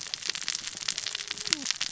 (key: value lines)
label: biophony, cascading saw
recorder: SoundTrap 600 or HydroMoth